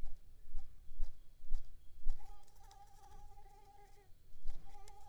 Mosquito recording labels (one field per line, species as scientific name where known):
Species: Mansonia uniformis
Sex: female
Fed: unfed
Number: one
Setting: cup